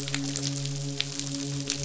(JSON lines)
{"label": "biophony, midshipman", "recorder": "SoundTrap 500"}